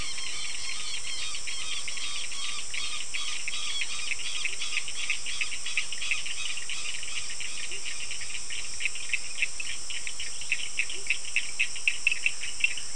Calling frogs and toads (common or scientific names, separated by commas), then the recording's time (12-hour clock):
Cochran's lime tree frog
6:15pm